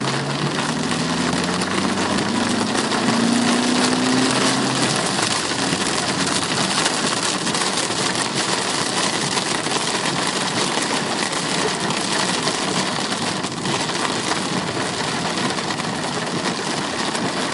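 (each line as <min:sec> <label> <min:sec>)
0:00.0 An engine sound grows louder briefly and then becomes very quiet again. 0:17.5
0:00.0 Heavy raindrops pound loudly. 0:17.5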